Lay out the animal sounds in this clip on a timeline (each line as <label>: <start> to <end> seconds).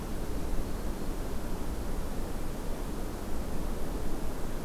Black-throated Green Warbler (Setophaga virens): 0.6 to 1.2 seconds